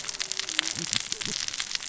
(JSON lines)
{"label": "biophony, cascading saw", "recorder": "SoundTrap 600 or HydroMoth"}